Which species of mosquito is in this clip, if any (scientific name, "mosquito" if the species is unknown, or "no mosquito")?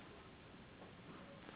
Anopheles gambiae s.s.